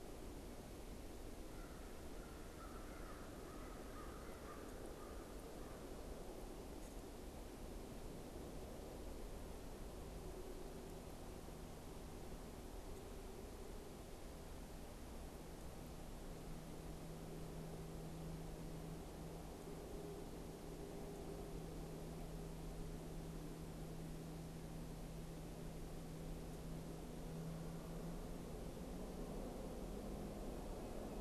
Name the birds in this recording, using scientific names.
Corvus brachyrhynchos